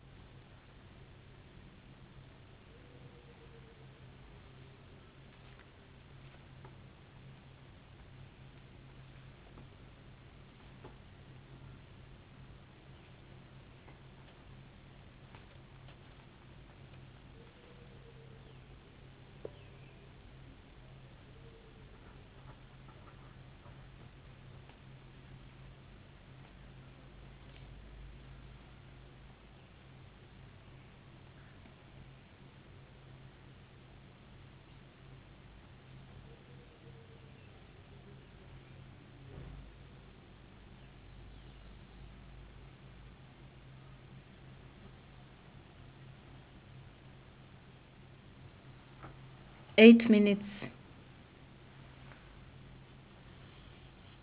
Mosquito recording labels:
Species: no mosquito; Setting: insect culture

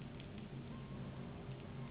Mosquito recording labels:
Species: Anopheles gambiae s.s.; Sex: female; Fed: unfed; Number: one; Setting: insect culture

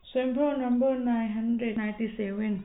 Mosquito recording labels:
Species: no mosquito; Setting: cup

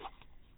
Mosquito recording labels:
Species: no mosquito; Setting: cup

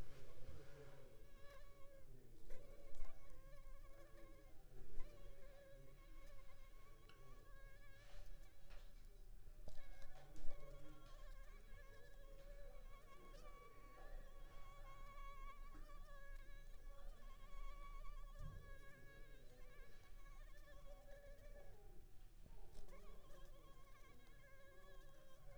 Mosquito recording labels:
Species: Anopheles arabiensis; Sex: female; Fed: unfed; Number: one; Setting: cup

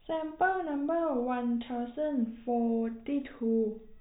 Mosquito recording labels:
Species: no mosquito; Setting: cup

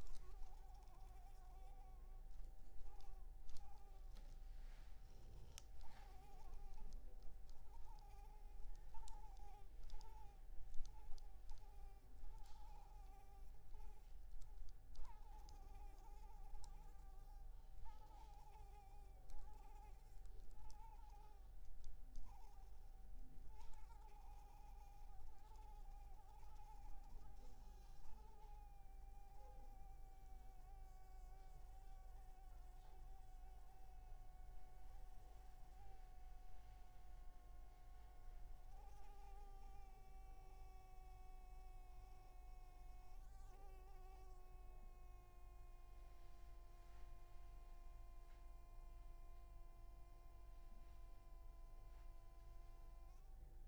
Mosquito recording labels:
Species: Anopheles maculipalpis; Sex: female; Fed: unfed; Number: one; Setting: cup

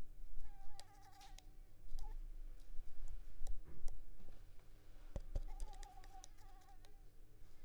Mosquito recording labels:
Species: Anopheles squamosus; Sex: female; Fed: unfed; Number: one; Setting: cup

